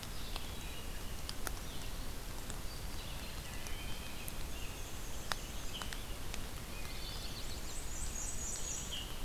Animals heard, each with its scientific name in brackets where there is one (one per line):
Wood Thrush (Hylocichla mustelina)
Chestnut-sided Warbler (Setophaga pensylvanica)
Black-and-white Warbler (Mniotilta varia)